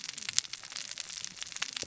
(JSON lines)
{"label": "biophony, cascading saw", "recorder": "SoundTrap 600 or HydroMoth"}